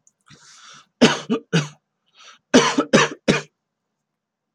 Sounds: Cough